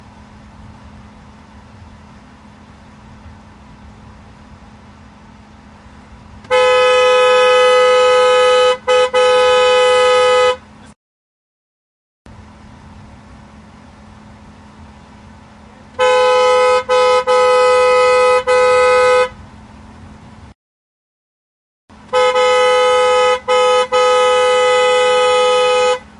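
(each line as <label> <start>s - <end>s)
A horn honks. 6.5s - 10.6s
A horn honks. 16.0s - 19.3s
A horn honks. 22.1s - 26.0s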